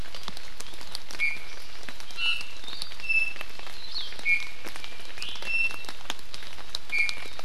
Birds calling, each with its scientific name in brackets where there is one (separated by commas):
Hawaii Akepa (Loxops coccineus), Iiwi (Drepanis coccinea)